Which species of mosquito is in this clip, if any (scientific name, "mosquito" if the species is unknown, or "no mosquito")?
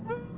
Aedes albopictus